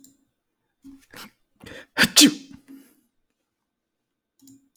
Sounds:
Sneeze